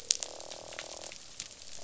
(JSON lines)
{"label": "biophony, croak", "recorder": "SoundTrap 500"}